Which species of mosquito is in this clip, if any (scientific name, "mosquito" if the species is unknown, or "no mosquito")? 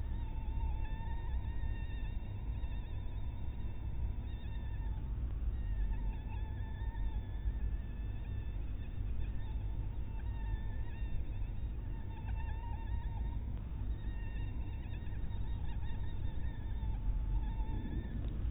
mosquito